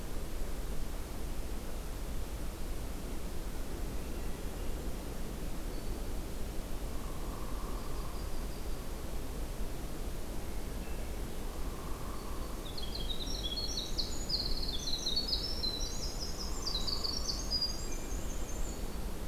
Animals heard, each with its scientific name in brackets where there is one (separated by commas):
Black-throated Green Warbler (Setophaga virens), Hairy Woodpecker (Dryobates villosus), Winter Wren (Troglodytes hiemalis), Hermit Thrush (Catharus guttatus), Yellow-rumped Warbler (Setophaga coronata)